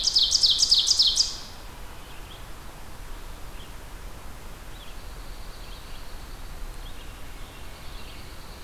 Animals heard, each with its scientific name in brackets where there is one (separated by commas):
Ovenbird (Seiurus aurocapilla), Red-eyed Vireo (Vireo olivaceus), Pine Warbler (Setophaga pinus)